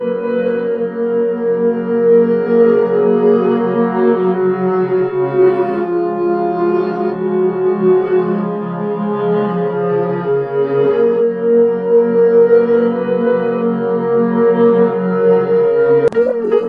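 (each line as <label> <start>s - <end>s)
A melancholic melody played on an electronic instrument. 0.0s - 16.7s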